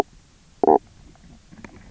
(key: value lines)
label: biophony, knock croak
recorder: SoundTrap 300